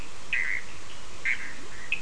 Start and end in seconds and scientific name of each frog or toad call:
0.0	1.5	Boana bischoffi
0.0	1.5	Sphaenorhynchus surdus